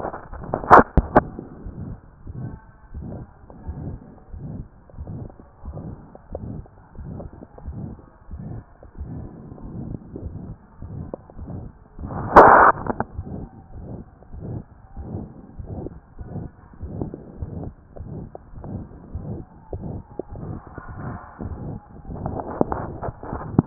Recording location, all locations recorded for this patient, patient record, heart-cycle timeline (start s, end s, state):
mitral valve (MV)
aortic valve (AV)+pulmonary valve (PV)+tricuspid valve (TV)+mitral valve (MV)
#Age: Child
#Sex: Male
#Height: 132.0 cm
#Weight: 36.6 kg
#Pregnancy status: False
#Murmur: Present
#Murmur locations: aortic valve (AV)+mitral valve (MV)+pulmonary valve (PV)+tricuspid valve (TV)
#Most audible location: pulmonary valve (PV)
#Systolic murmur timing: Holosystolic
#Systolic murmur shape: Plateau
#Systolic murmur grading: III/VI or higher
#Systolic murmur pitch: Medium
#Systolic murmur quality: Harsh
#Diastolic murmur timing: nan
#Diastolic murmur shape: nan
#Diastolic murmur grading: nan
#Diastolic murmur pitch: nan
#Diastolic murmur quality: nan
#Outcome: Abnormal
#Campaign: 2014 screening campaign
0.00	2.32	unannotated
2.32	2.35	diastole
2.35	2.45	S1
2.45	2.54	systole
2.54	2.60	S2
2.60	2.94	diastole
2.94	3.04	S1
3.04	3.17	systole
3.17	3.24	S2
3.24	3.66	diastole
3.66	3.76	S1
3.76	3.93	systole
3.93	3.99	S2
3.99	4.34	diastole
4.34	4.44	S1
4.44	4.59	systole
4.59	4.66	S2
4.66	4.98	diastole
4.98	5.08	S1
5.08	5.23	systole
5.23	5.29	S2
5.29	5.64	diastole
5.64	5.73	S1
5.73	5.90	systole
5.90	5.96	S2
5.96	6.33	diastole
6.33	23.66	unannotated